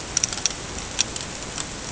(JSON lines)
{"label": "ambient", "recorder": "HydroMoth"}